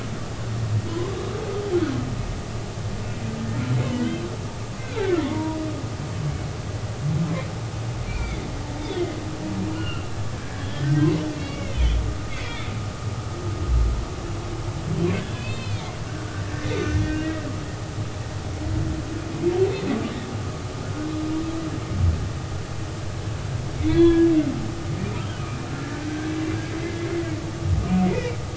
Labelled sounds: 5.0	5.6	humpback whale, 0.83 to 1.6 kHz
8.1	9.2	humpback whale, 2.0 to 3.7 kHz
9.7	10.1	humpback whale, 1.3 to 3.0 kHz
10.5	11.9	humpback whale, 0.90 to 3.4 kHz
12.3	12.7	humpback whale, 1.7 to 2.4 kHz
15.4	17.4	humpback whale, 1.4 to 4.3 kHz
23.8	24.3	humpback whale, 0.96 to 3.5 kHz
25.2	26.3	humpback whale, 1.3 to 3.3 kHz
27.1	27.4	humpback whale, 1.9 to 2.1 kHz
28.0	28.4	humpback whale, 1.9 to 2.6 kHz

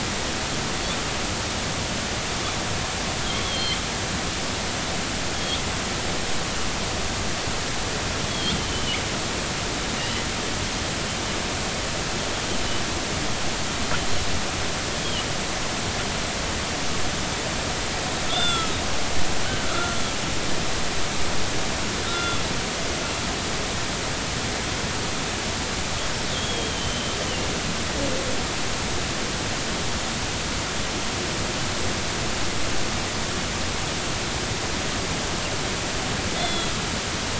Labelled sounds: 3.4	3.8	killer whale, northern resident, G clan, GG subclan, call N45, 3.0 to 3.4 kHz
5.3	5.6	killer whale, northern resident, G clan, GG subclan, call N45, 3.2 to 3.7 kHz
8.3	9.0	killer whale, northern resident, G clan, GG subclan, call N45, 2.8 to 3.6 kHz
10.0	10.2	killer whale, northern resident, G clan, call N40, 2.8 to 3.1 kHz
18.3	20.0	killer whale, northern resident, G clan, call N40, 1.2 to 3.7 kHz
22.1	22.5	killer whale, northern resident, G clan, call N40, 1.3 to 3.5 kHz
26.3	27.1	killer whale, northern resident, 3.0 to 3.4 kHz
36.3	36.8	killer whale, northern resident, G clan, call N40, 2.0 to 4.3 kHz

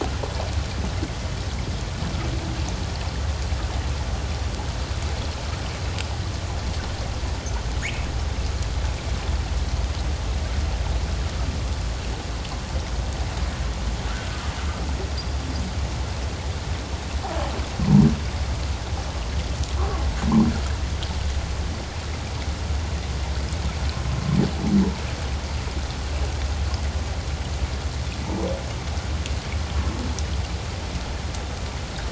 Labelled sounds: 7.8	8.1	humpback whale, 1.6 to 2.7 kHz

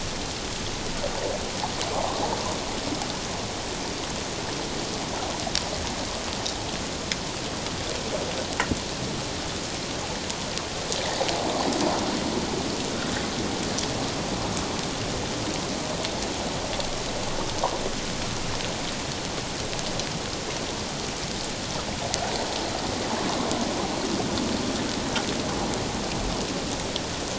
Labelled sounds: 1.9	2.2	water noise, 0.78 to 1.2 kHz

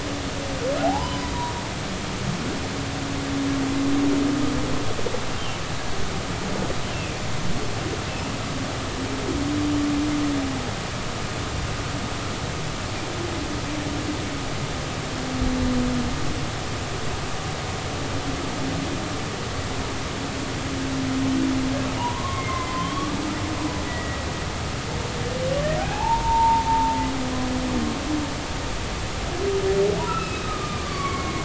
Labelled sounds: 0.8	1.3	humpback whale, 0.80 to 5.1 kHz
22.0	23.2	humpback whale, 0.80 to 2.2 kHz
23.9	24.2	humpback whale, 1.9 to 2.1 kHz
25.8	27.0	humpback whale, 0.80 to 2.7 kHz
30.1	31.4	humpback whale, 1.0 to 2.7 kHz

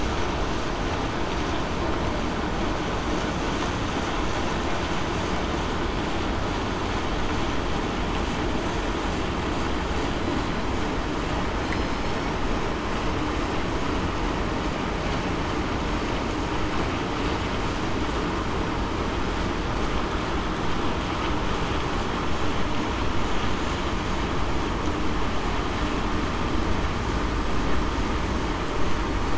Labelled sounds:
11.7	12.3	killer whale, southern resident, 5.1 to 5.6 kHz

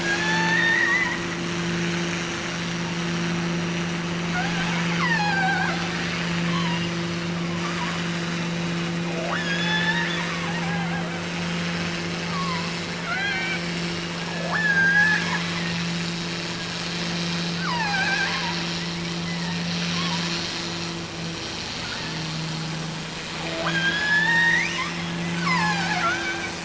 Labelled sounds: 0.0	1.3	killer whale, offshore, 0.59 to 4.7 kHz
4.3	7.0	killer whale, offshore, 0.52 to 5.5 kHz
9.1	11.2	killer whale, offshore, 0.52 to 7.1 kHz
12.2	13.8	killer whale, offshore, 0.61 to 4.4 kHz
14.3	15.5	killer whale, offshore, 0.36 to 7.3 kHz
17.6	18.6	killer whale, offshore, 0.61 to 6.0 kHz
19.2	19.8	killer whale, offshore, 0.66 to 3.2 kHz
23.4	26.6	killer whale, offshore, 0.52 to 8.0 kHz

